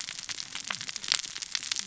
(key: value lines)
label: biophony, cascading saw
recorder: SoundTrap 600 or HydroMoth